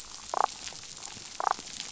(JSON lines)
{"label": "biophony, damselfish", "recorder": "SoundTrap 500"}